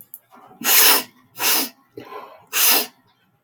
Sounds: Sniff